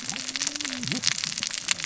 {"label": "biophony, cascading saw", "recorder": "SoundTrap 600 or HydroMoth"}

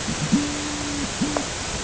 {"label": "ambient", "recorder": "HydroMoth"}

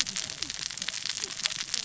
{"label": "biophony, cascading saw", "recorder": "SoundTrap 600 or HydroMoth"}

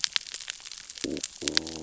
{"label": "biophony, growl", "recorder": "SoundTrap 600 or HydroMoth"}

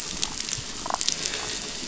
{"label": "biophony, damselfish", "recorder": "SoundTrap 500"}
{"label": "anthrophony, boat engine", "recorder": "SoundTrap 500"}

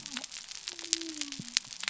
{"label": "biophony", "recorder": "SoundTrap 300"}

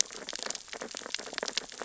{"label": "biophony, sea urchins (Echinidae)", "recorder": "SoundTrap 600 or HydroMoth"}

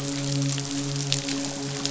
{"label": "biophony, midshipman", "recorder": "SoundTrap 500"}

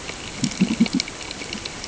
{"label": "ambient", "recorder": "HydroMoth"}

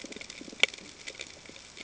{"label": "ambient", "recorder": "HydroMoth"}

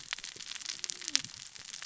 {"label": "biophony, cascading saw", "recorder": "SoundTrap 600 or HydroMoth"}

